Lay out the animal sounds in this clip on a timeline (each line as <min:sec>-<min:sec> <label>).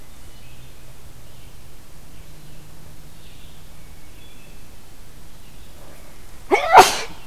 0:00.0-0:00.7 Hermit Thrush (Catharus guttatus)
0:00.0-0:07.3 Red-eyed Vireo (Vireo olivaceus)
0:03.7-0:04.8 Hermit Thrush (Catharus guttatus)